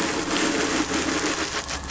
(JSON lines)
{"label": "anthrophony, boat engine", "recorder": "SoundTrap 500"}